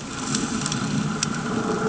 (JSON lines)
{"label": "anthrophony, boat engine", "recorder": "HydroMoth"}